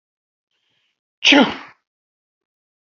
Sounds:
Sneeze